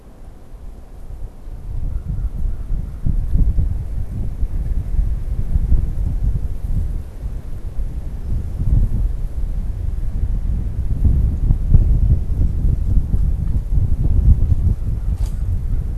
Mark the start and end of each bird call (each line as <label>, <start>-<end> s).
American Crow (Corvus brachyrhynchos), 1.7-3.2 s
American Crow (Corvus brachyrhynchos), 14.8-15.9 s